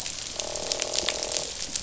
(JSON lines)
{"label": "biophony, croak", "recorder": "SoundTrap 500"}